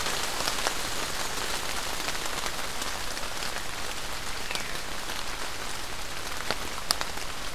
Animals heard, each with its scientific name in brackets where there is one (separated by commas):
Veery (Catharus fuscescens)